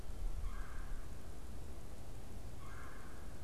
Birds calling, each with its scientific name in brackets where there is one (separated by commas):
Red-bellied Woodpecker (Melanerpes carolinus)